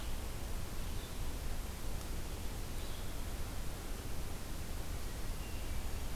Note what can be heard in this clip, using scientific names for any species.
Vireo olivaceus